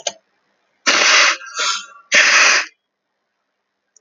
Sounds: Sniff